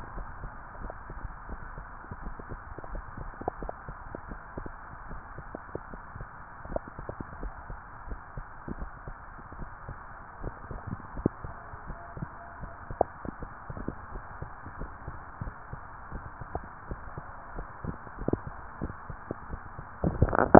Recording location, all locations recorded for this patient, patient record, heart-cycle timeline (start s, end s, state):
tricuspid valve (TV)
aortic valve (AV)+pulmonary valve (PV)+tricuspid valve (TV)
#Age: Child
#Sex: Female
#Height: 165.0 cm
#Weight: 67.0 kg
#Pregnancy status: False
#Murmur: Unknown
#Murmur locations: nan
#Most audible location: nan
#Systolic murmur timing: nan
#Systolic murmur shape: nan
#Systolic murmur grading: nan
#Systolic murmur pitch: nan
#Systolic murmur quality: nan
#Diastolic murmur timing: nan
#Diastolic murmur shape: nan
#Diastolic murmur grading: nan
#Diastolic murmur pitch: nan
#Diastolic murmur quality: nan
#Outcome: Abnormal
#Campaign: 2015 screening campaign
0.00	9.39	unannotated
9.39	9.56	diastole
9.56	9.72	S1
9.72	9.88	systole
9.88	9.98	S2
9.98	10.16	diastole
10.16	10.26	S1
10.26	10.42	systole
10.42	10.56	S2
10.56	10.70	diastole
10.70	10.79	S1
10.79	10.88	systole
10.88	11.00	S2
11.00	11.14	diastole
11.14	11.26	S1
11.26	11.44	systole
11.44	11.56	S2
11.56	11.86	diastole
11.86	12.01	S1
12.01	12.19	systole
12.19	12.30	S2
12.30	12.62	diastole
12.62	12.70	S1
12.70	12.86	systole
12.86	12.98	S2
12.98	13.37	diastole
13.37	13.55	S1
13.55	13.70	systole
13.70	13.86	S2
13.86	13.98	S2
13.98	14.12	diastole
14.12	14.24	S1
14.24	14.37	systole
14.37	14.49	S2
14.49	14.74	diastole
14.74	14.88	S1
14.88	15.00	systole
15.00	15.17	S2
15.17	15.39	diastole
15.39	15.59	S1
15.59	15.71	systole
15.71	15.78	S2
15.78	16.09	diastole
16.09	16.20	S1
16.20	16.39	systole
16.39	16.46	S2
16.46	16.87	diastole
16.87	17.04	S1
17.04	17.16	systole
17.16	17.24	S2
17.24	17.54	diastole
17.54	17.64	S1
17.64	17.83	systole
17.83	18.02	S2
18.02	18.19	diastole
18.19	18.28	S1
18.28	18.44	systole
18.44	18.52	S2
18.52	18.81	diastole
18.81	18.94	S1
18.94	19.08	systole
19.08	19.24	S2
19.24	19.52	diastole
19.52	19.65	S1
19.65	20.59	unannotated